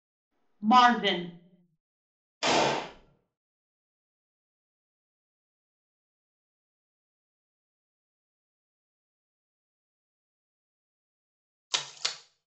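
At 0.62 seconds, someone says "Marvin." Then, at 2.41 seconds, gunfire can be heard. Finally, at 11.7 seconds, there is splashing.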